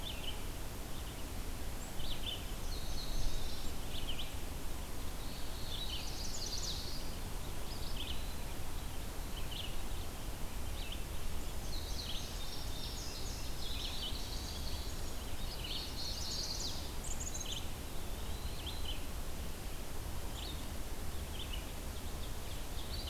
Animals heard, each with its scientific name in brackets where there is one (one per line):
Chestnut-sided Warbler (Setophaga pensylvanica)
Eastern Wood-Pewee (Contopus virens)
Red-eyed Vireo (Vireo olivaceus)
Black-throated Blue Warbler (Setophaga caerulescens)
Indigo Bunting (Passerina cyanea)
Common Yellowthroat (Geothlypis trichas)
Black-capped Chickadee (Poecile atricapillus)